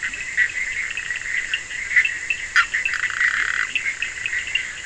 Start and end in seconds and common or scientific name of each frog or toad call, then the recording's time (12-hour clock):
0.0	4.8	Bischoff's tree frog
2.9	3.7	Scinax perereca
3.3	3.5	Leptodactylus latrans
3:30am